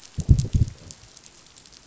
{"label": "biophony, growl", "recorder": "SoundTrap 500"}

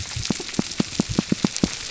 {"label": "biophony, pulse", "recorder": "SoundTrap 300"}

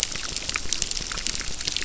{"label": "biophony, crackle", "recorder": "SoundTrap 600"}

